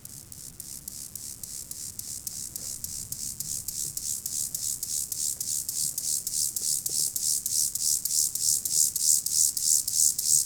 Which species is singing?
Chorthippus mollis